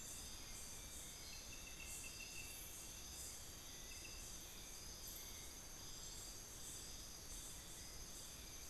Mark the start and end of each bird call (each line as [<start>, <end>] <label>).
[0.10, 8.69] Hauxwell's Thrush (Turdus hauxwelli)
[3.50, 4.10] unidentified bird